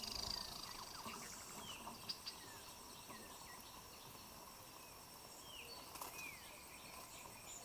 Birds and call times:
African Emerald Cuckoo (Chrysococcyx cupreus): 3.1s
Waller's Starling (Onychognathus walleri): 6.1s

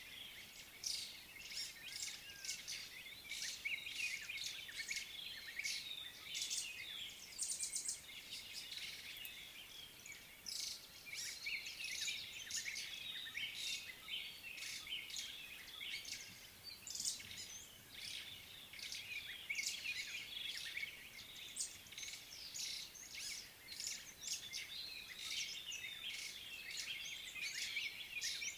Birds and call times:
White-browed Sparrow-Weaver (Plocepasser mahali): 1.9s
White-browed Robin-Chat (Cossypha heuglini): 13.1s, 25.9s

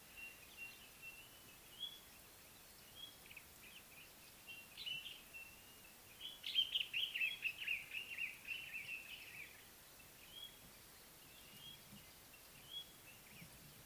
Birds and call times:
White-browed Robin-Chat (Cossypha heuglini): 1.8s
Common Bulbul (Pycnonotus barbatus): 7.0s

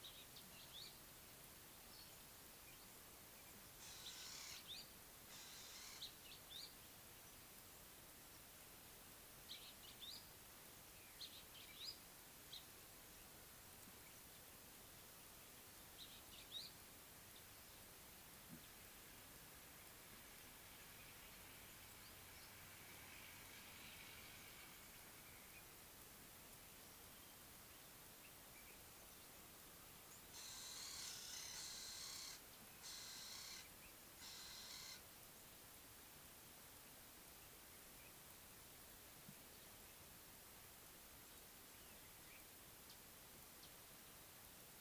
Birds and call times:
Ring-necked Dove (Streptopelia capicola): 30.8s

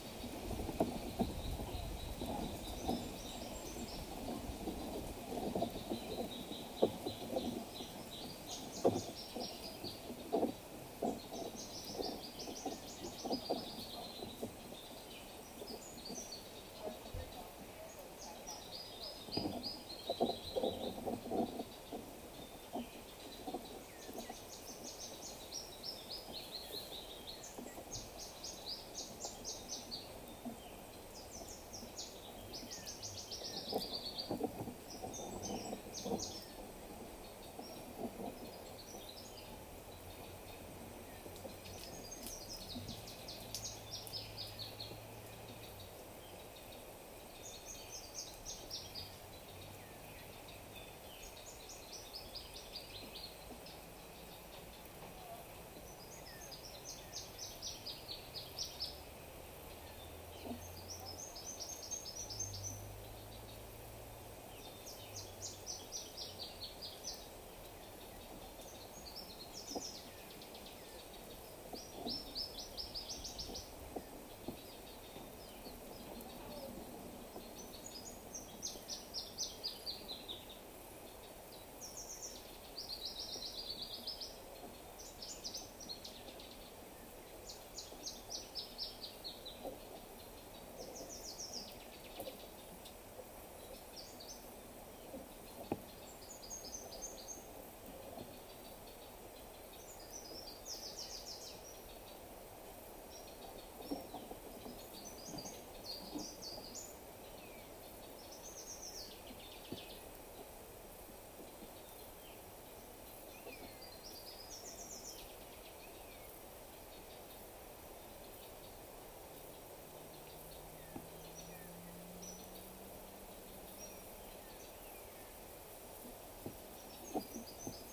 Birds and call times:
Eastern Double-collared Sunbird (Cinnyris mediocris): 3.2s
Yellow-whiskered Greenbul (Eurillas latirostris): 7.3s
Brown Woodland-Warbler (Phylloscopus umbrovirens): 19.3s, 29.0s, 43.6s, 66.1s, 83.3s, 101.0s, 114.7s
African Emerald Cuckoo (Chrysococcyx cupreus): 24.0s, 32.8s, 56.4s
Waller's Starling (Onychognathus walleri): 30.6s, 35.2s, 60.2s
Common Buzzard (Buteo buteo): 113.4s
Cinnamon-chested Bee-eater (Merops oreobates): 122.1s

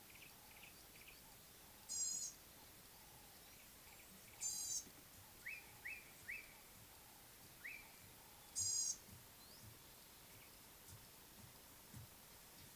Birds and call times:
Gray-backed Camaroptera (Camaroptera brevicaudata): 2.1s
Slate-colored Boubou (Laniarius funebris): 5.9s

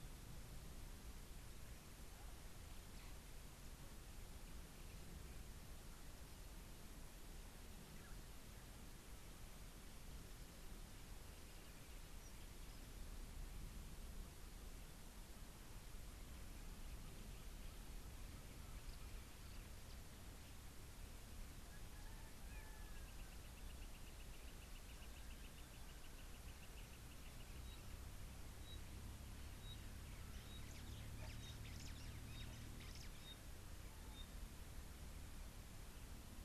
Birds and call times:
Brubru (Nilaus afer): 25.5s
Pygmy Batis (Batis perkeo): 29.7s, 33.3s

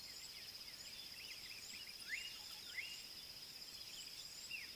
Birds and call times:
Slate-colored Boubou (Laniarius funebris): 2.2s

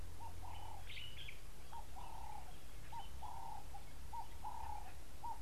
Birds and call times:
Common Bulbul (Pycnonotus barbatus): 1.0s

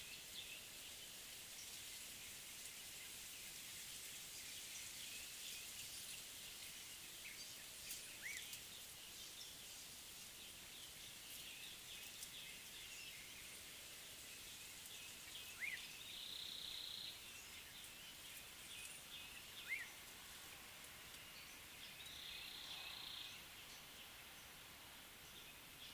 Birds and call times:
Black-tailed Oriole (Oriolus percivali): 15.6s
Chestnut-throated Apalis (Apalis porphyrolaema): 16.7s

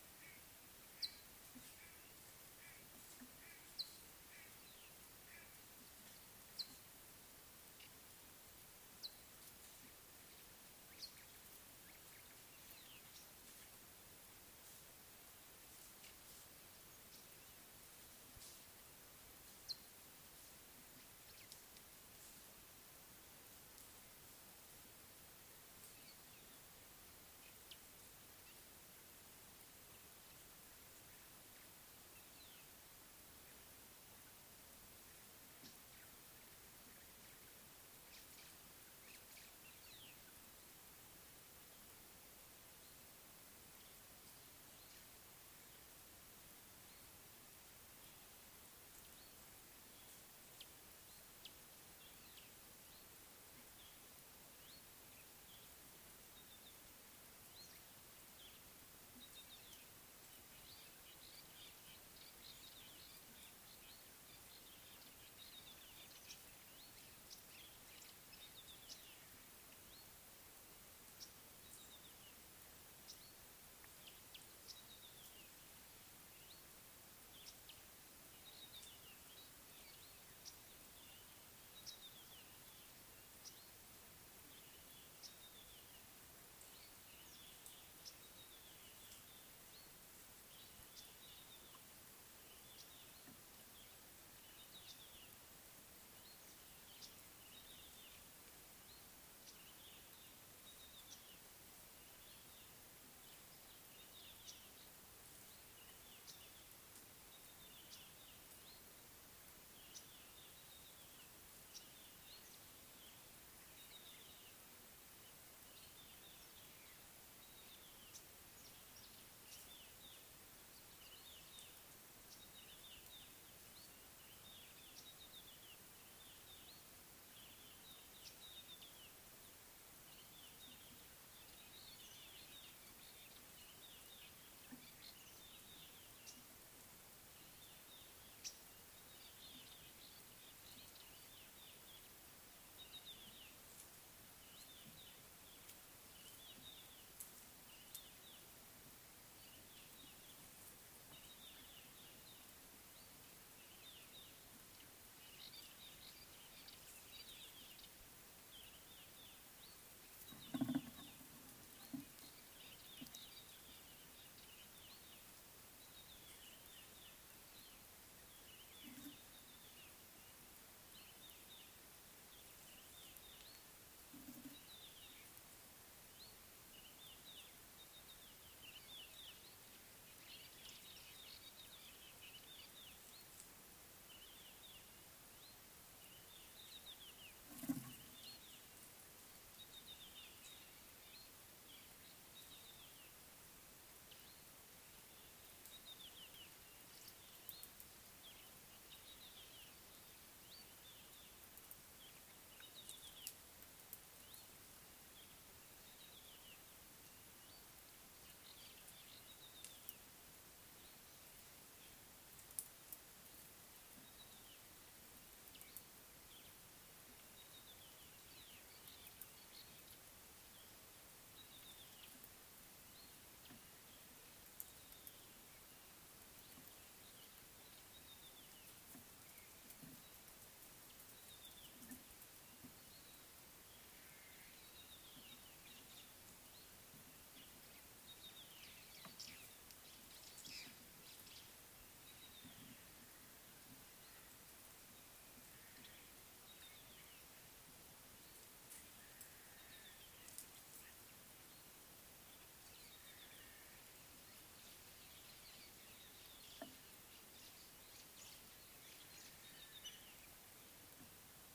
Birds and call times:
Northern Crombec (Sylvietta brachyura): 7.8s
Green-winged Pytilia (Pytilia melba): 68.9s, 71.2s, 74.7s, 81.8s, 83.4s, 85.2s, 90.9s, 92.8s, 106.3s, 111.7s, 128.2s, 138.4s
Red-backed Scrub-Robin (Cercotrichas leucophrys): 75.0s, 78.7s, 82.0s, 97.6s, 100.8s, 122.7s, 125.2s, 128.5s, 168.5s, 173.0s, 174.7s, 177.3s, 178.7s, 182.5s, 189.8s, 192.6s, 196.0s, 202.9s, 206.1s, 209.5s, 221.7s, 228.2s, 231.3s, 234.9s, 242.2s, 246.7s
Fork-tailed Drongo (Dicrurus adsimilis): 155.4s, 181.3s, 219.5s
White-browed Sparrow-Weaver (Plocepasser mahali): 258.2s

